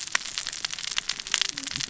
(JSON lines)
{"label": "biophony, cascading saw", "recorder": "SoundTrap 600 or HydroMoth"}